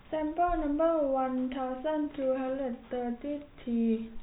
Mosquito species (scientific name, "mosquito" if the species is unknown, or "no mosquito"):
no mosquito